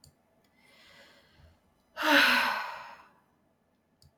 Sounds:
Sigh